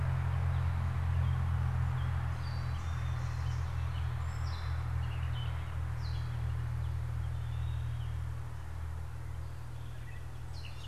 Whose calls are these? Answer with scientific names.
Dumetella carolinensis